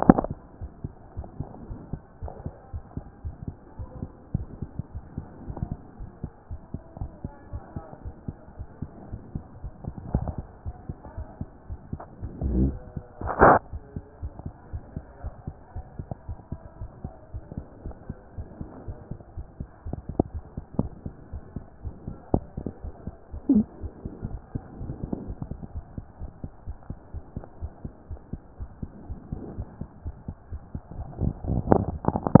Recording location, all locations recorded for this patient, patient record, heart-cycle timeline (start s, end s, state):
aortic valve (AV)
aortic valve (AV)+pulmonary valve (PV)+tricuspid valve (TV)+mitral valve (MV)
#Age: Child
#Sex: Female
#Height: 112.0 cm
#Weight: 20.6 kg
#Pregnancy status: False
#Murmur: Absent
#Murmur locations: nan
#Most audible location: nan
#Systolic murmur timing: nan
#Systolic murmur shape: nan
#Systolic murmur grading: nan
#Systolic murmur pitch: nan
#Systolic murmur quality: nan
#Diastolic murmur timing: nan
#Diastolic murmur shape: nan
#Diastolic murmur grading: nan
#Diastolic murmur pitch: nan
#Diastolic murmur quality: nan
#Outcome: Normal
#Campaign: 2014 screening campaign
0.00	14.06	unannotated
14.06	14.22	diastole
14.22	14.32	S1
14.32	14.46	systole
14.46	14.54	S2
14.54	14.72	diastole
14.72	14.82	S1
14.82	14.96	systole
14.96	15.04	S2
15.04	15.22	diastole
15.22	15.34	S1
15.34	15.46	systole
15.46	15.56	S2
15.56	15.74	diastole
15.74	15.86	S1
15.86	15.98	systole
15.98	16.08	S2
16.08	16.28	diastole
16.28	16.38	S1
16.38	16.52	systole
16.52	16.60	S2
16.60	16.80	diastole
16.80	16.90	S1
16.90	17.04	systole
17.04	17.12	S2
17.12	17.32	diastole
17.32	17.44	S1
17.44	17.56	systole
17.56	17.66	S2
17.66	17.84	diastole
17.84	17.94	S1
17.94	18.08	systole
18.08	18.18	S2
18.18	18.36	diastole
18.36	18.48	S1
18.48	18.60	systole
18.60	18.70	S2
18.70	18.86	diastole
18.86	18.98	S1
18.98	19.10	systole
19.10	19.20	S2
19.20	19.36	diastole
19.36	19.46	S1
19.46	19.58	systole
19.58	19.68	S2
19.68	19.86	diastole
19.86	32.40	unannotated